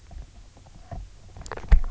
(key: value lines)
label: biophony, knock croak
recorder: SoundTrap 300